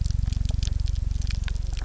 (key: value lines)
label: anthrophony, boat engine
recorder: SoundTrap 300